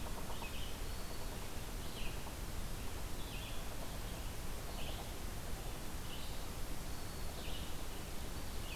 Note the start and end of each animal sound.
[0.00, 5.11] Yellow-bellied Sapsucker (Sphyrapicus varius)
[0.00, 8.76] Red-eyed Vireo (Vireo olivaceus)
[0.70, 1.34] Black-throated Green Warbler (Setophaga virens)
[6.37, 7.40] Black-throated Green Warbler (Setophaga virens)
[7.81, 8.76] Ovenbird (Seiurus aurocapilla)

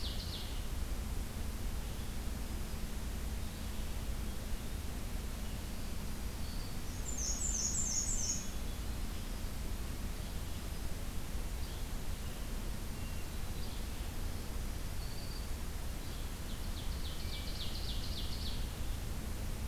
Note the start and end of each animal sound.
[0.00, 0.64] Ovenbird (Seiurus aurocapilla)
[0.35, 5.71] Red-eyed Vireo (Vireo olivaceus)
[5.48, 7.14] Black-throated Green Warbler (Setophaga virens)
[6.91, 8.56] Black-and-white Warbler (Mniotilta varia)
[7.80, 9.02] Hermit Thrush (Catharus guttatus)
[11.53, 11.85] Yellow-bellied Flycatcher (Empidonax flaviventris)
[12.87, 13.68] Hermit Thrush (Catharus guttatus)
[13.50, 13.87] Yellow-bellied Flycatcher (Empidonax flaviventris)
[14.16, 15.68] Black-throated Green Warbler (Setophaga virens)
[15.97, 16.23] Yellow-bellied Flycatcher (Empidonax flaviventris)
[16.34, 18.70] Ovenbird (Seiurus aurocapilla)

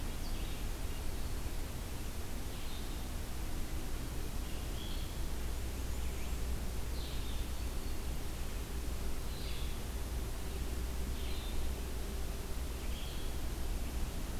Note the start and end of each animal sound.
[0.00, 14.39] Blue-headed Vireo (Vireo solitarius)
[5.32, 6.65] Blackburnian Warbler (Setophaga fusca)

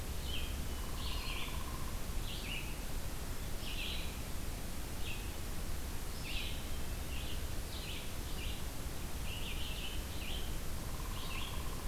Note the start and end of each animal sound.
[0.00, 4.21] Red-eyed Vireo (Vireo olivaceus)
[0.68, 2.14] Downy Woodpecker (Dryobates pubescens)
[4.77, 11.88] Red-eyed Vireo (Vireo olivaceus)
[10.80, 11.88] Downy Woodpecker (Dryobates pubescens)

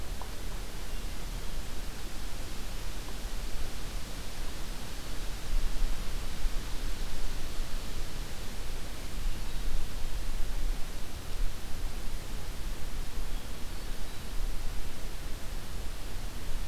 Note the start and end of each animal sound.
[13.14, 14.30] Hermit Thrush (Catharus guttatus)

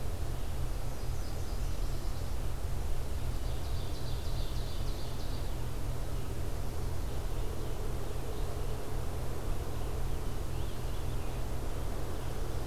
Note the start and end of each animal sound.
[1.06, 2.42] Nashville Warbler (Leiothlypis ruficapilla)
[3.33, 5.54] Ovenbird (Seiurus aurocapilla)
[9.52, 11.49] Scarlet Tanager (Piranga olivacea)

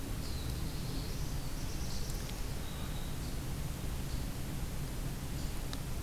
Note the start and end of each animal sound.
[0.00, 2.46] Black-throated Blue Warbler (Setophaga caerulescens)
[2.28, 3.38] Black-throated Green Warbler (Setophaga virens)

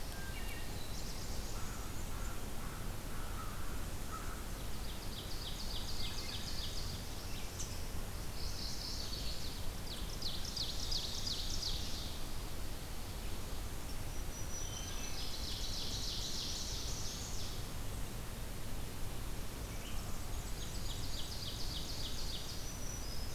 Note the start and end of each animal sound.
[0.00, 0.77] Wood Thrush (Hylocichla mustelina)
[0.67, 1.86] Black-throated Blue Warbler (Setophaga caerulescens)
[0.79, 2.46] Black-and-white Warbler (Mniotilta varia)
[1.54, 4.50] American Crow (Corvus brachyrhynchos)
[4.65, 6.90] Ovenbird (Seiurus aurocapilla)
[5.96, 6.75] Wood Thrush (Hylocichla mustelina)
[7.18, 23.34] Red-eyed Vireo (Vireo olivaceus)
[8.17, 9.28] Mourning Warbler (Geothlypis philadelphia)
[8.50, 9.63] Chestnut-sided Warbler (Setophaga pensylvanica)
[9.83, 12.22] Ovenbird (Seiurus aurocapilla)
[13.94, 15.47] Black-throated Green Warbler (Setophaga virens)
[14.53, 15.30] Wood Thrush (Hylocichla mustelina)
[14.90, 17.50] Ovenbird (Seiurus aurocapilla)
[20.06, 21.40] Black-and-white Warbler (Mniotilta varia)
[20.25, 22.74] Ovenbird (Seiurus aurocapilla)
[22.43, 23.34] Black-throated Green Warbler (Setophaga virens)

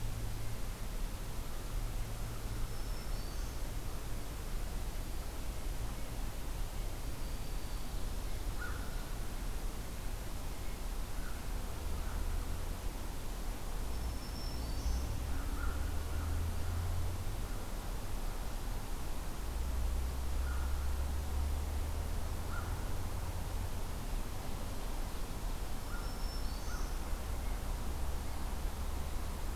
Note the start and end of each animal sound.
[2.64, 3.65] Black-throated Green Warbler (Setophaga virens)
[7.11, 8.30] Black-throated Green Warbler (Setophaga virens)
[8.47, 8.97] American Crow (Corvus brachyrhynchos)
[10.98, 12.29] American Crow (Corvus brachyrhynchos)
[13.76, 15.09] Black-throated Green Warbler (Setophaga virens)
[15.32, 16.52] American Crow (Corvus brachyrhynchos)
[20.38, 22.80] American Crow (Corvus brachyrhynchos)
[25.74, 27.00] American Crow (Corvus brachyrhynchos)
[25.81, 27.03] Black-throated Green Warbler (Setophaga virens)

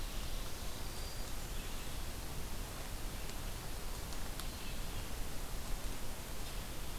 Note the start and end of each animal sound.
[0.00, 0.72] Ovenbird (Seiurus aurocapilla)
[0.00, 6.99] Red-eyed Vireo (Vireo olivaceus)
[0.35, 1.47] Black-throated Green Warbler (Setophaga virens)

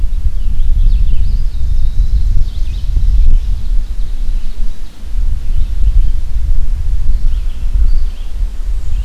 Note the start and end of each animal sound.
[0.00, 9.04] Red-eyed Vireo (Vireo olivaceus)
[0.49, 4.98] Ovenbird (Seiurus aurocapilla)
[1.06, 2.27] Eastern Wood-Pewee (Contopus virens)
[7.19, 7.96] American Crow (Corvus brachyrhynchos)
[8.45, 9.04] Black-and-white Warbler (Mniotilta varia)

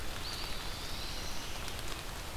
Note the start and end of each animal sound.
[0.00, 1.69] Black-throated Blue Warbler (Setophaga caerulescens)
[0.13, 1.45] Eastern Wood-Pewee (Contopus virens)
[1.25, 2.36] Red-eyed Vireo (Vireo olivaceus)

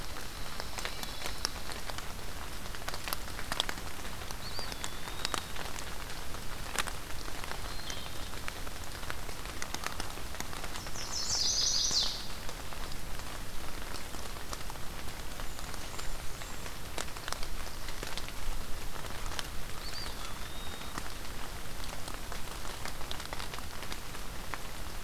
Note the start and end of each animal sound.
[0.18, 1.69] Pine Warbler (Setophaga pinus)
[4.25, 5.59] Eastern Wood-Pewee (Contopus virens)
[7.42, 8.38] Wood Thrush (Hylocichla mustelina)
[10.66, 12.46] Chestnut-sided Warbler (Setophaga pensylvanica)
[15.35, 16.63] Blackburnian Warbler (Setophaga fusca)
[19.67, 21.05] Eastern Wood-Pewee (Contopus virens)

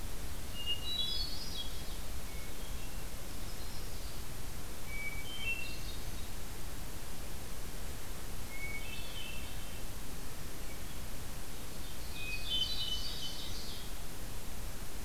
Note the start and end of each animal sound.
[0.49, 1.95] Hermit Thrush (Catharus guttatus)
[2.24, 3.13] Hermit Thrush (Catharus guttatus)
[3.13, 4.40] Yellow-rumped Warbler (Setophaga coronata)
[4.73, 6.28] Hermit Thrush (Catharus guttatus)
[8.38, 9.96] Hermit Thrush (Catharus guttatus)
[11.90, 13.46] Hermit Thrush (Catharus guttatus)
[11.91, 14.11] Ovenbird (Seiurus aurocapilla)

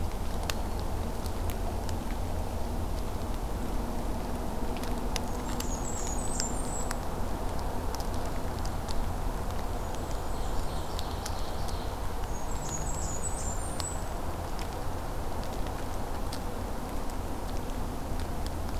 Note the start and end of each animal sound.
[5.25, 7.05] Blackburnian Warbler (Setophaga fusca)
[9.63, 11.02] Blackburnian Warbler (Setophaga fusca)
[10.18, 12.01] Ovenbird (Seiurus aurocapilla)
[12.26, 14.18] Blackburnian Warbler (Setophaga fusca)

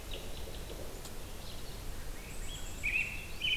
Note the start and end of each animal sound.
[0.07, 0.87] American Robin (Turdus migratorius)
[1.40, 1.95] American Robin (Turdus migratorius)
[1.97, 3.56] Swainson's Thrush (Catharus ustulatus)
[2.18, 3.28] Black-capped Chickadee (Poecile atricapillus)
[2.74, 3.56] American Robin (Turdus migratorius)

